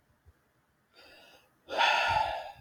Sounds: Sigh